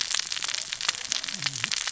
{"label": "biophony, cascading saw", "recorder": "SoundTrap 600 or HydroMoth"}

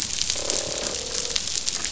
{"label": "biophony, croak", "recorder": "SoundTrap 500"}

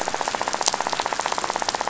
{"label": "biophony, rattle", "recorder": "SoundTrap 500"}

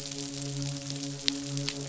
{"label": "biophony, midshipman", "recorder": "SoundTrap 500"}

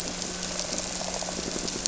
{"label": "anthrophony, boat engine", "recorder": "SoundTrap 300"}
{"label": "biophony", "recorder": "SoundTrap 300"}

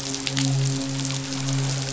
{"label": "biophony, midshipman", "recorder": "SoundTrap 500"}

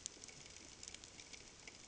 {"label": "ambient", "recorder": "HydroMoth"}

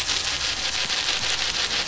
{"label": "anthrophony, boat engine", "recorder": "SoundTrap 500"}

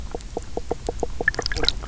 {"label": "biophony, knock croak", "recorder": "SoundTrap 300"}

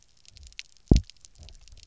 {"label": "biophony, double pulse", "recorder": "SoundTrap 300"}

